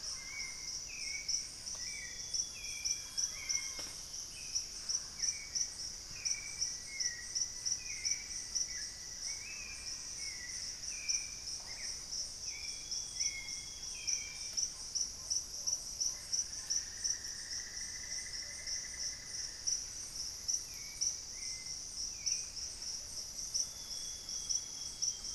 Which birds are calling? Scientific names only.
Amazona farinosa, Turdus hauxwelli, Cacicus solitarius, Cyanoloxia rothschildii, Formicarius analis, Patagioenas plumbea, Dendrexetastes rufigula, unidentified bird, Campylorhynchus turdinus